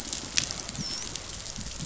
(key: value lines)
label: biophony, dolphin
recorder: SoundTrap 500